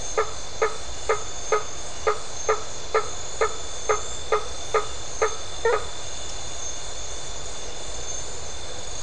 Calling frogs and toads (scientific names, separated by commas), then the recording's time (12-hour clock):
Boana faber
9:15pm